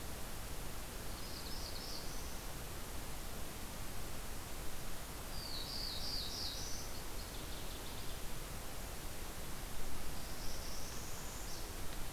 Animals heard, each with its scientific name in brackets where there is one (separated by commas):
Northern Waterthrush (Parkesia noveboracensis), Black-throated Blue Warbler (Setophaga caerulescens), Northern Parula (Setophaga americana)